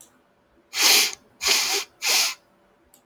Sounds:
Sniff